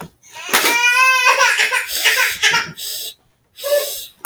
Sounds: Sniff